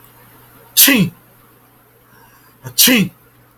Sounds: Sneeze